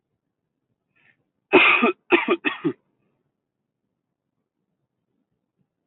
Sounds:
Cough